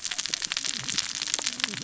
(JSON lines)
{"label": "biophony, cascading saw", "recorder": "SoundTrap 600 or HydroMoth"}